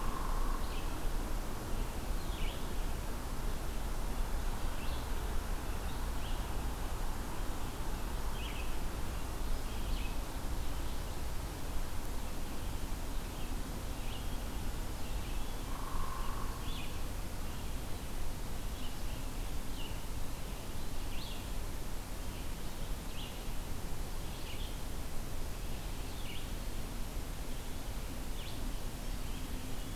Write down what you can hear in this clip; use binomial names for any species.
Dryobates villosus, Vireo olivaceus